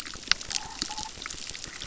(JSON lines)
{"label": "biophony, crackle", "recorder": "SoundTrap 600"}